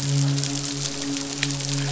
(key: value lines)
label: biophony, midshipman
recorder: SoundTrap 500